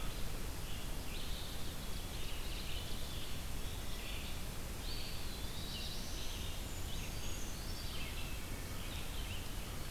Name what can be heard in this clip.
Red-eyed Vireo, Eastern Wood-Pewee, Ovenbird, Black-throated Blue Warbler, Brown Creeper, Wood Thrush